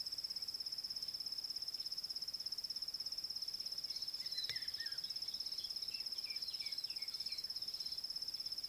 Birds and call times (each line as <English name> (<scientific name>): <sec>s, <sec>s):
Red-chested Cuckoo (Cuculus solitarius): 4.7s
White Helmetshrike (Prionops plumatus): 6.7s